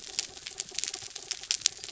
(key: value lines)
label: anthrophony, mechanical
recorder: SoundTrap 300